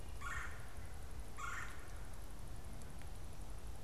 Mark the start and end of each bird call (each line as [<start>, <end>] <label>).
[0.00, 2.10] Red-bellied Woodpecker (Melanerpes carolinus)